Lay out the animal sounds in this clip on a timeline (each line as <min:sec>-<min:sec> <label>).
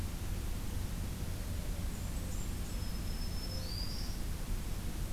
0:01.5-0:02.6 Blackburnian Warbler (Setophaga fusca)
0:02.6-0:04.2 Black-throated Green Warbler (Setophaga virens)